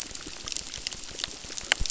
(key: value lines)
label: biophony, crackle
recorder: SoundTrap 600